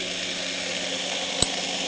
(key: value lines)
label: anthrophony, boat engine
recorder: HydroMoth